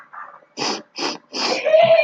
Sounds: Sniff